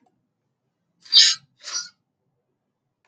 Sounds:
Sniff